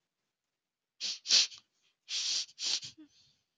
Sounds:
Sniff